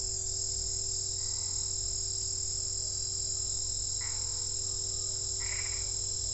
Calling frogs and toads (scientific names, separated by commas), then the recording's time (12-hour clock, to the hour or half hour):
Boana albopunctata
~7pm